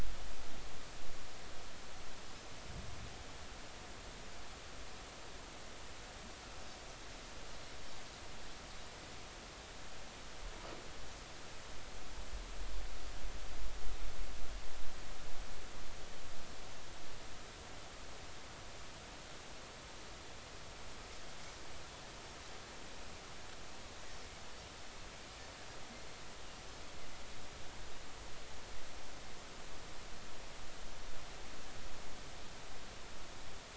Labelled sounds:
25.9	26.2	Pacific white-sided dolphin, 4.1 to 4.3 kHz

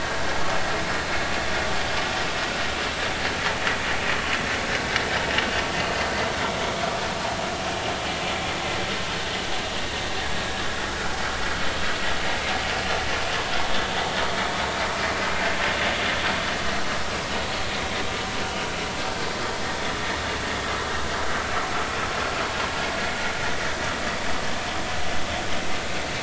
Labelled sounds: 10.9	11.2	vessel noise, 1.2 to 1.6 kHz

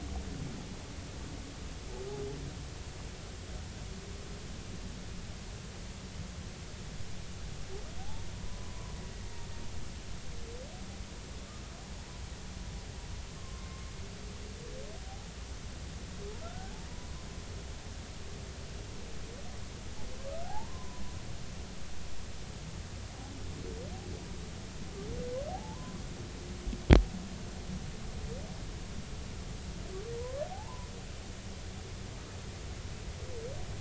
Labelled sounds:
8.0	8.9	humpback whale, 0.80 to 1.1 kHz
13.4	13.8	humpback whale, 0.99 to 1.1 kHz
15.1	15.3	humpback whale, 0.80 to 0.90 kHz
16.4	16.7	humpback whale, 1.3 to 1.6 kHz
20.5	21.0	humpback whale, 0.80 to 1.1 kHz
25.5	26.0	humpback whale, 0.80 to 1.1 kHz
30.5	30.9	humpback whale, 0.80 to 1.1 kHz

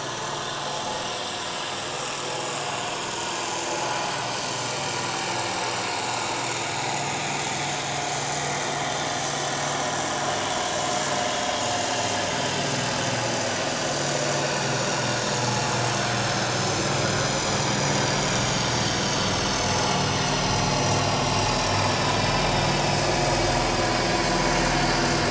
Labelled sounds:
0.6	0.9	vessel noise, 0.78 to 5.6 kHz
2.0	2.2	vessel noise, 2.4 to 2.7 kHz
3.9	4.2	vessel noise, 4.3 to 4.7 kHz
4.6	5.0	vessel noise, 7.3 to 7.6 kHz
5.5	5.8	vessel noise, 5.4 to 5.7 kHz
8.4	9.5	vessel noise, 2.9 to 6.1 kHz
14.4	14.7	vessel noise, 2.4 to 2.7 kHz
17.6	18.4	vessel noise, 5.6 to 6.9 kHz
19.1	20.3	vessel noise, 5.2 to 6.4 kHz
22.4	23.7	vessel noise, 3.5 to 4.3 kHz

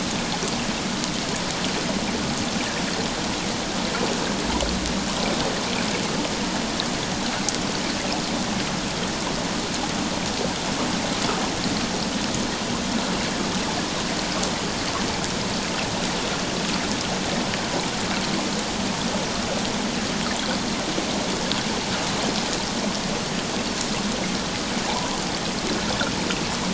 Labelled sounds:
24.8	25.2	water noise, 0.78 to 1.2 kHz

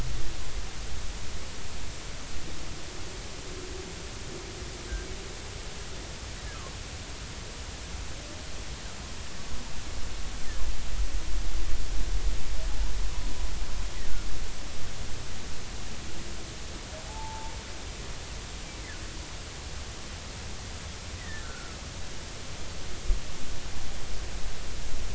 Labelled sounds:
17.1	17.5	humpback whale, 0.80 to 0.96 kHz
21.2	21.8	humpback whale, 1.2 to 2.1 kHz

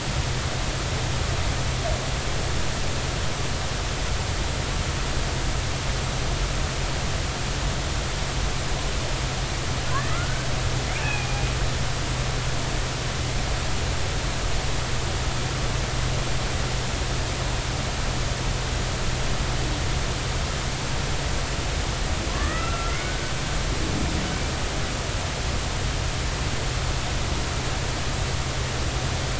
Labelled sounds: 9.9	10.5	killer whale, Bigg's (transient), 1.2 to 2.1 kHz
12.0	12.3	killer whale, Bigg's (transient), 2.4 to 2.8 kHz
22.3	23.3	killer whale, Bigg's (transient), 0.96 to 2.0 kHz

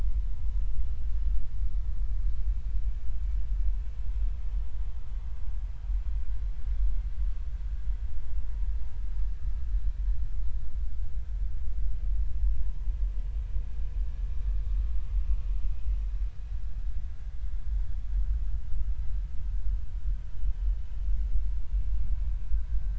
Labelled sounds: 20.2	20.5	vessel noise, 3.0 to 3.1 kHz

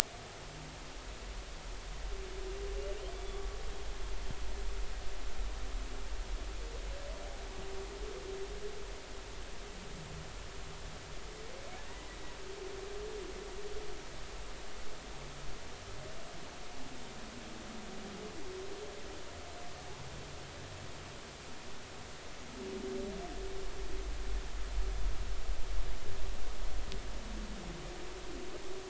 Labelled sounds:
3.1	3.4	humpback whale, 3.4 to 3.5 kHz

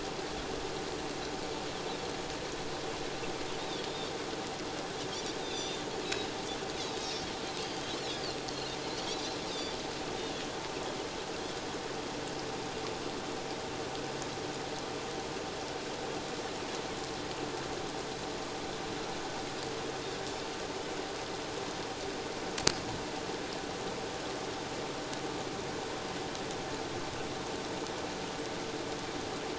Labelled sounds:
3.9	4.1	Pacific white-sided dolphin, 3.5 to 3.8 kHz
5.4	6.3	Pacific white-sided dolphin, 2.4 to 6.1 kHz
7.9	8.2	Pacific white-sided dolphin, 3.5 to 4.4 kHz
9.5	9.8	Pacific white-sided dolphin, 3.4 to 3.8 kHz

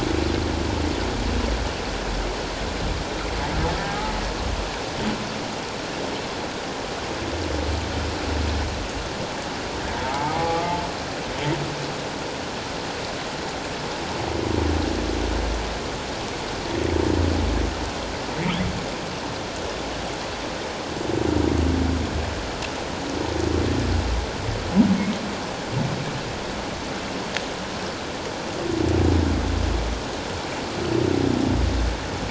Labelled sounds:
3.8	4.1	humpback whale, 0.78 to 0.91 kHz
10.0	10.7	humpback whale, 0.78 to 1.2 kHz
18.3	18.6	humpback whale, 1.8 to 2.4 kHz

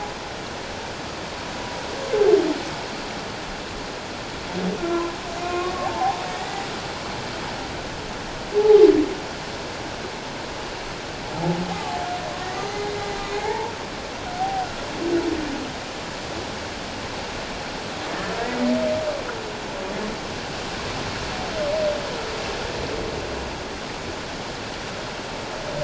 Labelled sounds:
5.4	6.7	humpback whale, 0.78 to 2.6 kHz
8.5	8.9	humpback whale, 0.78 to 0.91 kHz
11.3	12.0	humpback whale, 0.78 to 0.94 kHz
12.4	12.9	humpback whale, 1.8 to 6.2 kHz
13.3	13.7	humpback whale, 0.78 to 2.2 kHz
14.4	14.7	humpback whale, 0.78 to 0.81 kHz

